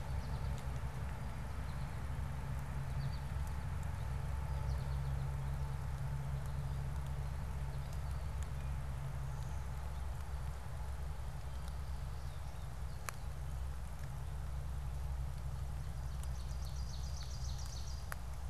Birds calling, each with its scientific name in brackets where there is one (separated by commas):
Ovenbird (Seiurus aurocapilla), American Goldfinch (Spinus tristis)